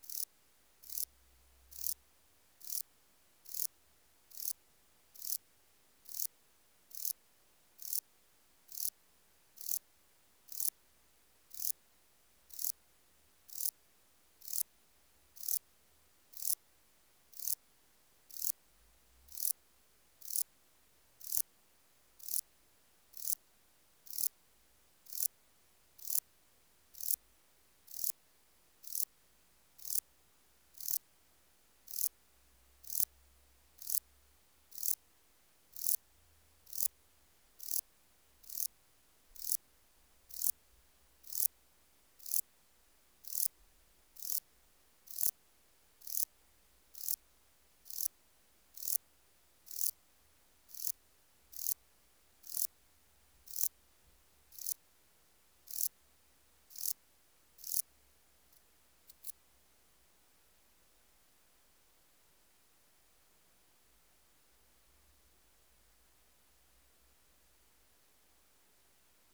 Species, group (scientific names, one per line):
Euchorthippus elegantulus
Orthoptera